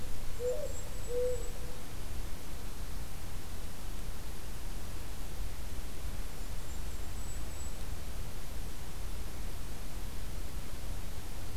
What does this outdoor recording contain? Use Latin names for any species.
Zenaida macroura, Regulus satrapa